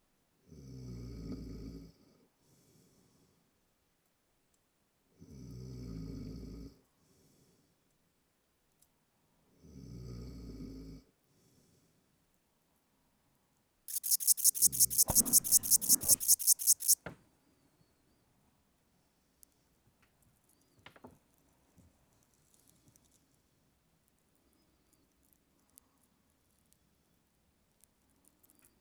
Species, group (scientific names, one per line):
Pholidoptera frivaldszkyi
Orthoptera